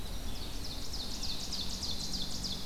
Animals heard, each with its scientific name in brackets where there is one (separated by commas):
Winter Wren (Troglodytes hiemalis), Red-eyed Vireo (Vireo olivaceus), Ovenbird (Seiurus aurocapilla)